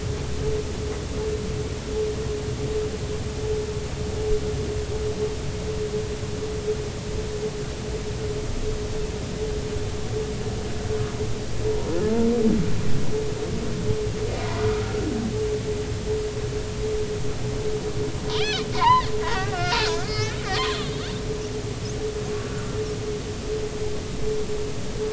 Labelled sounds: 14.7	15.0	humpback whale, 1.2 to 1.4 kHz
18.3	20.4	humpback whale, 0.83 to 5.3 kHz
22.4	22.7	humpback whale, 1.3 to 1.7 kHz

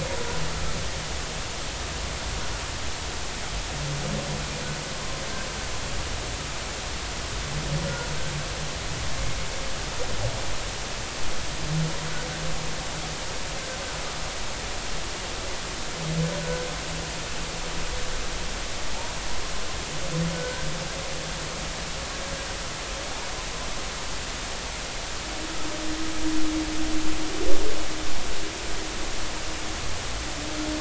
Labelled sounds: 16.4	16.7	humpback whale, 1.4 to 1.6 kHz
20.3	20.7	humpback whale, 1.4 to 1.7 kHz

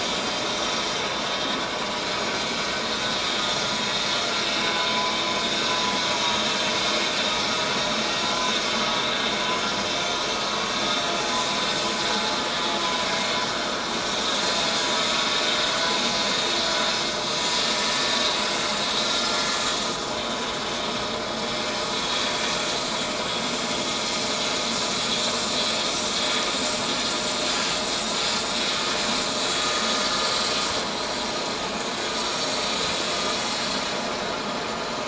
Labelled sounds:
3.5	3.7	vessel noise, 5.4 to 5.6 kHz
6.1	6.4	vessel noise, 0.91 to 0.97 kHz
29.7	30.0	vessel noise, 6.4 to 6.7 kHz
32.1	32.5	vessel noise, 5.4 to 5.6 kHz

